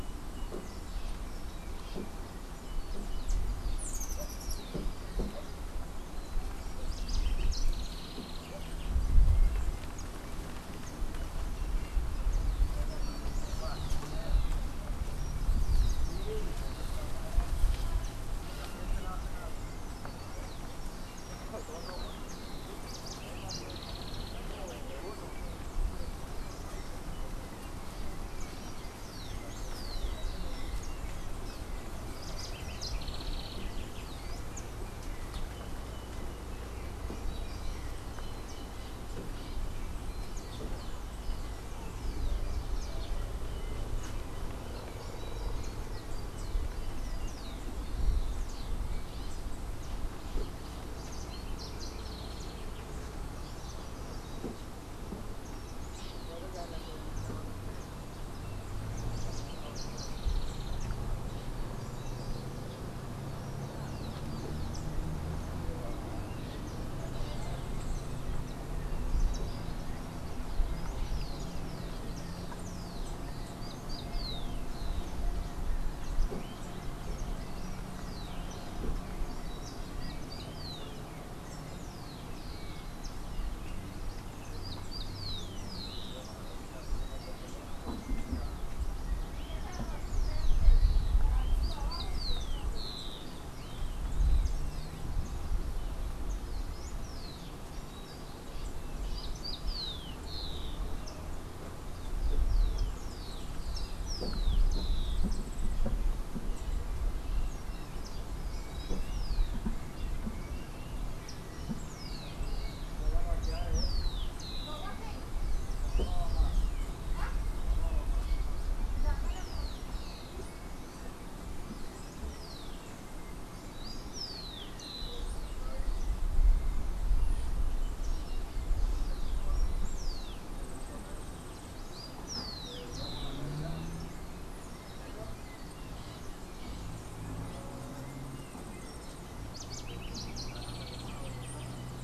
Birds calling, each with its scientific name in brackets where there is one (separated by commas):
unidentified bird, House Wren (Troglodytes aedon), Rufous-collared Sparrow (Zonotrichia capensis)